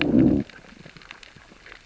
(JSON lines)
{"label": "biophony, growl", "recorder": "SoundTrap 600 or HydroMoth"}